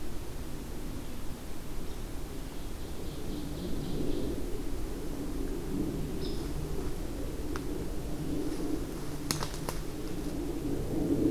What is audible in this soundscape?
Ovenbird, American Robin